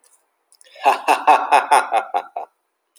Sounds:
Laughter